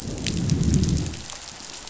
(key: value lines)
label: biophony, growl
recorder: SoundTrap 500